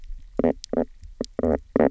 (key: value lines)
label: biophony, knock croak
recorder: SoundTrap 300